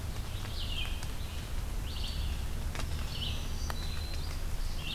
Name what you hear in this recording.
Red-eyed Vireo, Black-throated Green Warbler